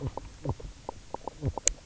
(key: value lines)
label: biophony, knock croak
recorder: SoundTrap 300